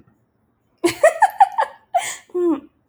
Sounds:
Laughter